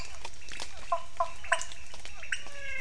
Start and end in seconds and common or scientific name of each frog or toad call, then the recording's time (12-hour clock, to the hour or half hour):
0.0	2.8	pointedbelly frog
0.6	2.8	Physalaemus cuvieri
0.9	1.8	Cuyaba dwarf frog
7pm